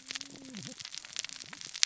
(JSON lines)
{"label": "biophony, cascading saw", "recorder": "SoundTrap 600 or HydroMoth"}